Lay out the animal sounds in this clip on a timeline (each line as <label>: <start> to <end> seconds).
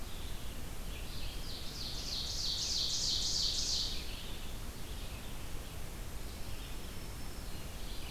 Red-eyed Vireo (Vireo olivaceus): 0.0 to 8.1 seconds
Ovenbird (Seiurus aurocapilla): 0.7 to 4.4 seconds
Black-throated Green Warbler (Setophaga virens): 6.1 to 7.9 seconds